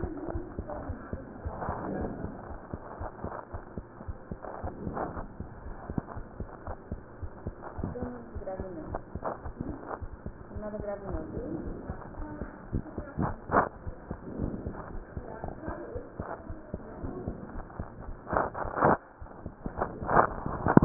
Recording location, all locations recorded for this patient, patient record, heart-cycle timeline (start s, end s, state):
aortic valve (AV)
aortic valve (AV)+pulmonary valve (PV)+tricuspid valve (TV)+mitral valve (MV)
#Age: Child
#Sex: Female
#Height: 130.0 cm
#Weight: 24.8 kg
#Pregnancy status: False
#Murmur: Absent
#Murmur locations: nan
#Most audible location: nan
#Systolic murmur timing: nan
#Systolic murmur shape: nan
#Systolic murmur grading: nan
#Systolic murmur pitch: nan
#Systolic murmur quality: nan
#Diastolic murmur timing: nan
#Diastolic murmur shape: nan
#Diastolic murmur grading: nan
#Diastolic murmur pitch: nan
#Diastolic murmur quality: nan
#Outcome: Abnormal
#Campaign: 2015 screening campaign
0.00	0.30	unannotated
0.30	0.46	S1
0.46	0.56	systole
0.56	0.70	S2
0.70	0.86	diastole
0.86	1.00	S1
1.00	1.10	systole
1.10	1.22	S2
1.22	1.42	diastole
1.42	1.54	S1
1.54	1.66	systole
1.66	1.76	S2
1.76	1.94	diastole
1.94	2.12	S1
2.12	2.20	systole
2.20	2.32	S2
2.32	2.48	diastole
2.48	2.60	S1
2.60	2.74	systole
2.74	2.80	S2
2.80	2.98	diastole
2.98	3.10	S1
3.10	3.24	systole
3.24	3.32	S2
3.32	3.54	diastole
3.54	3.62	S1
3.62	3.76	systole
3.76	3.84	S2
3.84	4.02	diastole
4.02	4.16	S1
4.16	4.32	systole
4.32	4.40	S2
4.40	4.62	diastole
4.62	4.72	S1
4.72	4.82	systole
4.82	4.96	S2
4.96	5.16	diastole
5.16	5.28	S1
5.28	5.36	systole
5.36	5.46	S2
5.46	5.64	diastole
5.64	5.76	S1
5.76	5.86	systole
5.86	5.96	S2
5.96	6.16	diastole
6.16	6.26	S1
6.26	6.40	systole
6.40	6.48	S2
6.48	6.66	diastole
6.66	6.76	S1
6.76	6.90	systole
6.90	7.00	S2
7.00	7.20	diastole
7.20	7.30	S1
7.30	7.42	systole
7.42	7.56	S2
7.56	7.76	diastole
7.76	7.89	S1
7.89	8.00	systole
8.00	8.16	S2
8.16	8.34	diastole
8.34	8.44	S1
8.44	8.58	systole
8.58	8.68	S2
8.68	8.86	diastole
8.86	9.00	S1
9.00	9.14	systole
9.14	9.24	S2
9.24	9.44	diastole
9.44	9.54	S1
9.54	9.68	systole
9.68	9.78	S2
9.78	9.98	diastole
9.98	10.10	S1
10.10	10.26	systole
10.26	10.34	S2
10.34	10.56	diastole
10.56	10.70	S1
10.70	10.74	systole
10.74	10.88	S2
10.88	11.08	diastole
11.08	11.26	S1
11.26	11.34	systole
11.34	11.46	S2
11.46	11.64	diastole
11.64	11.80	S1
11.80	11.88	systole
11.88	11.98	S2
11.98	12.18	diastole
12.18	12.30	S1
12.30	12.40	systole
12.40	12.52	S2
12.52	12.72	diastole
12.72	12.84	S1
12.84	12.94	systole
12.94	13.06	S2
13.06	13.22	diastole
13.22	13.38	S1
13.38	20.85	unannotated